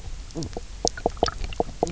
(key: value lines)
label: biophony, knock croak
recorder: SoundTrap 300